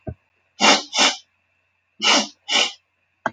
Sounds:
Sniff